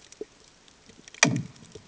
{"label": "anthrophony, bomb", "recorder": "HydroMoth"}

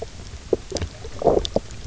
{"label": "biophony, knock croak", "recorder": "SoundTrap 300"}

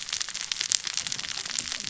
{"label": "biophony, cascading saw", "recorder": "SoundTrap 600 or HydroMoth"}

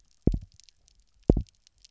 {"label": "biophony, double pulse", "recorder": "SoundTrap 300"}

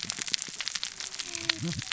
{"label": "biophony, cascading saw", "recorder": "SoundTrap 600 or HydroMoth"}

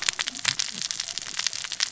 {"label": "biophony, cascading saw", "recorder": "SoundTrap 600 or HydroMoth"}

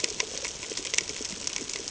{"label": "ambient", "recorder": "HydroMoth"}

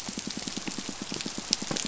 {"label": "biophony, pulse", "recorder": "SoundTrap 500"}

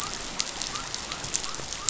{"label": "biophony", "recorder": "SoundTrap 500"}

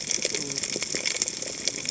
{"label": "biophony, cascading saw", "recorder": "HydroMoth"}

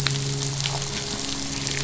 {"label": "biophony, midshipman", "recorder": "SoundTrap 500"}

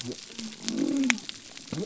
{"label": "biophony", "recorder": "SoundTrap 300"}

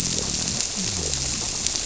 {"label": "biophony", "recorder": "SoundTrap 300"}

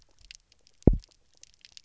{"label": "biophony, double pulse", "recorder": "SoundTrap 300"}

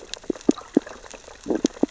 {"label": "biophony, stridulation", "recorder": "SoundTrap 600 or HydroMoth"}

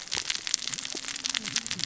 {"label": "biophony, cascading saw", "recorder": "SoundTrap 600 or HydroMoth"}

